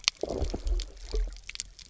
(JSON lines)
{"label": "biophony, low growl", "recorder": "SoundTrap 300"}